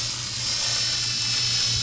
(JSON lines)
{"label": "anthrophony, boat engine", "recorder": "SoundTrap 500"}